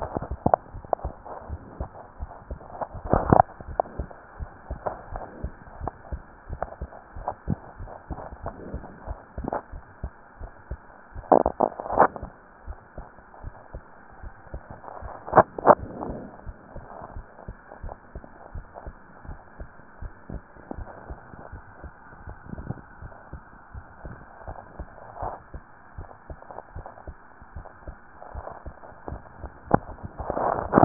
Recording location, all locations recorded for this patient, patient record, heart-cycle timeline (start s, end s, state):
tricuspid valve (TV)
aortic valve (AV)+pulmonary valve (PV)+tricuspid valve (TV)+mitral valve (MV)
#Age: Child
#Sex: Female
#Height: 129.0 cm
#Weight: 28.8 kg
#Pregnancy status: False
#Murmur: Unknown
#Murmur locations: nan
#Most audible location: nan
#Systolic murmur timing: nan
#Systolic murmur shape: nan
#Systolic murmur grading: nan
#Systolic murmur pitch: nan
#Systolic murmur quality: nan
#Diastolic murmur timing: nan
#Diastolic murmur shape: nan
#Diastolic murmur grading: nan
#Diastolic murmur pitch: nan
#Diastolic murmur quality: nan
#Outcome: Normal
#Campaign: 2015 screening campaign
0.00	16.44	unannotated
16.44	16.56	S1
16.56	16.73	systole
16.73	16.86	S2
16.86	17.14	diastole
17.14	17.26	S1
17.26	17.46	systole
17.46	17.56	S2
17.56	17.82	diastole
17.82	17.96	S1
17.96	18.14	systole
18.14	18.24	S2
18.24	18.54	diastole
18.54	18.66	S1
18.66	18.85	systole
18.85	18.96	S2
18.96	19.26	diastole
19.26	19.38	S1
19.38	19.58	systole
19.58	19.68	S2
19.68	20.00	diastole
20.00	20.12	S1
20.12	20.30	systole
20.30	20.44	S2
20.44	20.76	diastole
20.76	20.90	S1
20.90	21.08	systole
21.08	21.20	S2
21.20	21.52	diastole
21.52	21.62	S1
21.62	21.82	systole
21.82	21.92	S2
21.92	22.24	diastole
22.24	22.38	S1
22.38	22.57	systole
22.57	22.68	S2
22.68	23.02	diastole
23.02	23.12	S1
23.12	23.32	systole
23.32	23.42	S2
23.42	23.74	diastole
23.74	23.86	S1
23.86	24.04	systole
24.04	24.18	S2
24.18	24.46	diastole
24.46	24.58	S1
24.58	24.78	systole
24.78	24.92	S2
24.92	25.20	diastole
25.20	25.34	S1
25.34	25.52	systole
25.52	25.62	S2
25.62	25.96	diastole
25.96	26.08	S1
26.08	26.28	systole
26.28	26.38	S2
26.38	26.74	diastole
26.74	26.86	S1
26.86	27.06	systole
27.06	27.16	S2
27.16	27.54	diastole
27.54	27.66	S1
27.66	27.86	systole
27.86	28.00	S2
28.00	28.34	diastole
28.34	28.46	S1
28.46	28.64	systole
28.64	28.74	S2
28.74	29.08	diastole
29.08	29.22	S1
29.22	29.40	systole
29.40	29.52	S2
29.52	30.85	unannotated